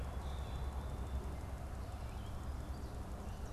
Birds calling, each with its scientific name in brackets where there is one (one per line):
Common Grackle (Quiscalus quiscula)